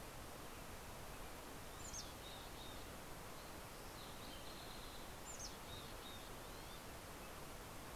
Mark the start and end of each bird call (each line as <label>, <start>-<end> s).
Mountain Chickadee (Poecile gambeli), 0.0-8.0 s
Green-tailed Towhee (Pipilo chlorurus), 3.2-5.7 s